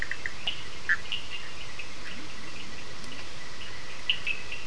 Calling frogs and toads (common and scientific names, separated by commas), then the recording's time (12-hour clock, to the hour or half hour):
Bischoff's tree frog (Boana bischoffi), Cochran's lime tree frog (Sphaenorhynchus surdus), Leptodactylus latrans
10pm